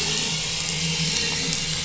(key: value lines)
label: anthrophony, boat engine
recorder: SoundTrap 500